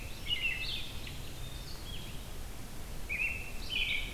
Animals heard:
American Robin (Turdus migratorius), Red-eyed Vireo (Vireo olivaceus)

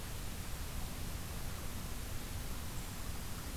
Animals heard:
Brown Creeper (Certhia americana), Black-throated Green Warbler (Setophaga virens)

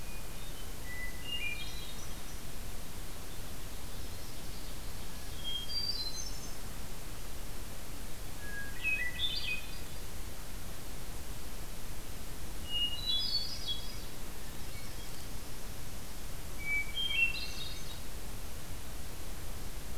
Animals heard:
Yellow-rumped Warbler (Setophaga coronata), Hermit Thrush (Catharus guttatus)

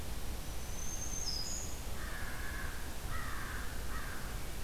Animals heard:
Black-throated Green Warbler (Setophaga virens), American Crow (Corvus brachyrhynchos)

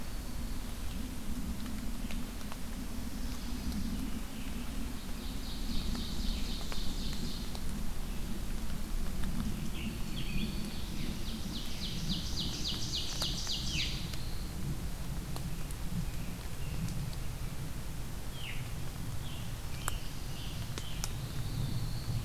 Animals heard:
American Robin (Turdus migratorius), Black-throated Green Warbler (Setophaga virens), Ovenbird (Seiurus aurocapilla), Black-throated Blue Warbler (Setophaga caerulescens), Scarlet Tanager (Piranga olivacea)

